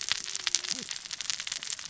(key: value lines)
label: biophony, cascading saw
recorder: SoundTrap 600 or HydroMoth